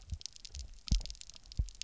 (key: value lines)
label: biophony, double pulse
recorder: SoundTrap 300